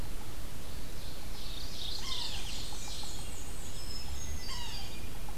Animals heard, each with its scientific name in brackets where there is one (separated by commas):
Yellow-bellied Sapsucker (Sphyrapicus varius), Ovenbird (Seiurus aurocapilla), Hermit Thrush (Catharus guttatus), Black-and-white Warbler (Mniotilta varia)